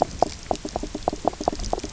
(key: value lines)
label: biophony, knock croak
recorder: SoundTrap 300